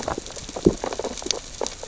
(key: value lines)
label: biophony, sea urchins (Echinidae)
recorder: SoundTrap 600 or HydroMoth